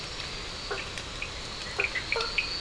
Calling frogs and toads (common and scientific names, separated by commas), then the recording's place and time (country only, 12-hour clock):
blacksmith tree frog (Boana faber), two-colored oval frog (Elachistocleis bicolor), Cochran's lime tree frog (Sphaenorhynchus surdus)
Brazil, 1:00am